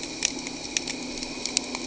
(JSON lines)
{"label": "anthrophony, boat engine", "recorder": "HydroMoth"}